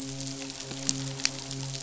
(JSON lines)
{"label": "biophony, midshipman", "recorder": "SoundTrap 500"}